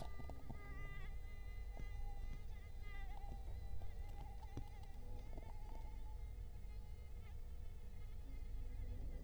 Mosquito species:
Culex quinquefasciatus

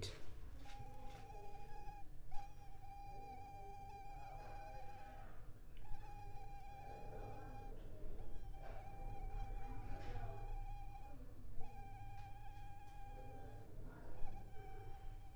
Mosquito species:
Culex pipiens complex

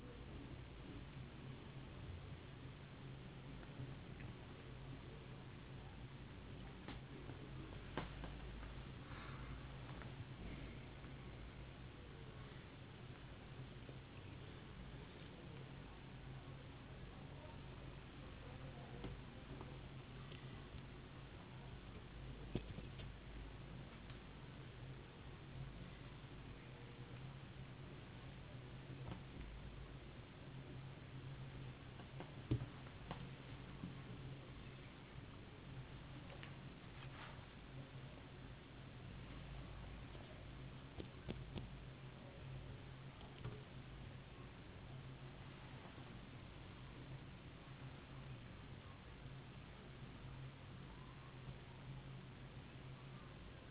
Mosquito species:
no mosquito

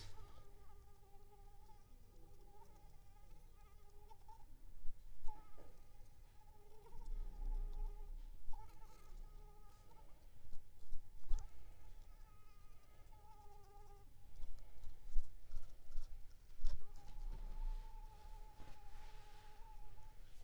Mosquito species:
Anopheles arabiensis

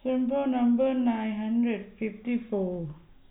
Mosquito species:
no mosquito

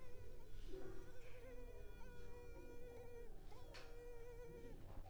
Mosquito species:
Culex pipiens complex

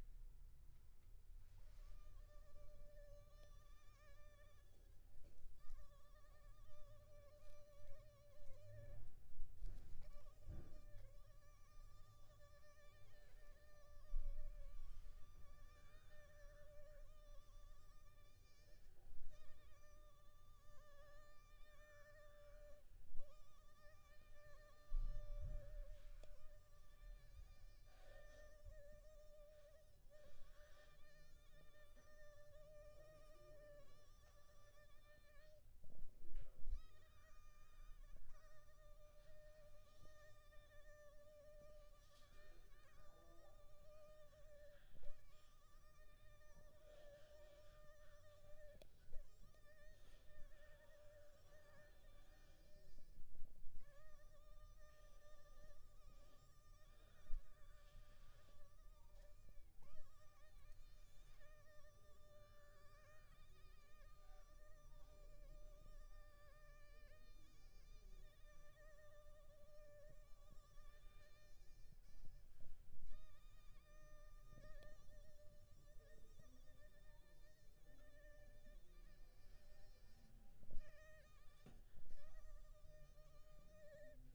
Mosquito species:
Mansonia uniformis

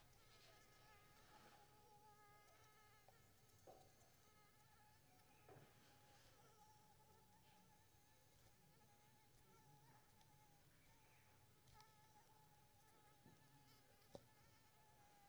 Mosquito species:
Anopheles squamosus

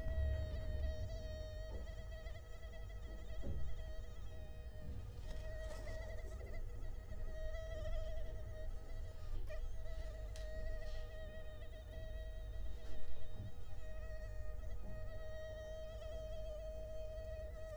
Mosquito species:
Culex quinquefasciatus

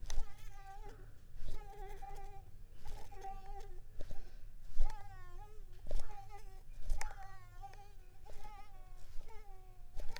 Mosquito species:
Mansonia uniformis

